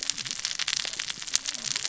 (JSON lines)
{"label": "biophony, cascading saw", "recorder": "SoundTrap 600 or HydroMoth"}